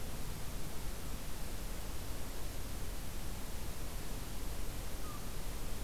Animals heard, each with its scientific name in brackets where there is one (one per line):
American Crow (Corvus brachyrhynchos)